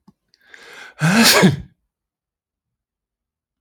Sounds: Sneeze